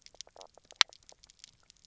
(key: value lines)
label: biophony, knock croak
recorder: SoundTrap 300